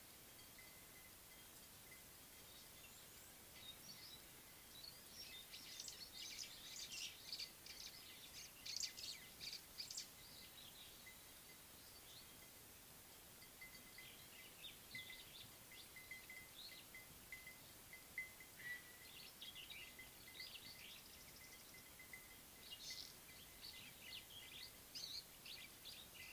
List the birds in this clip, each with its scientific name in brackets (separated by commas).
White-browed Sparrow-Weaver (Plocepasser mahali)